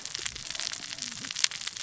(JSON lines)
{"label": "biophony, cascading saw", "recorder": "SoundTrap 600 or HydroMoth"}